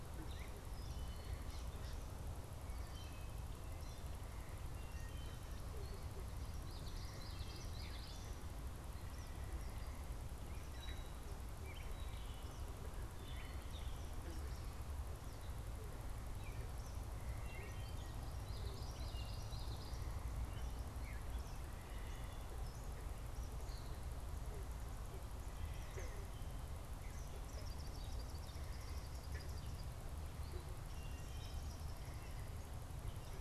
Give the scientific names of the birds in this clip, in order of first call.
Dumetella carolinensis, Hylocichla mustelina, Geothlypis trichas, Tyrannus tyrannus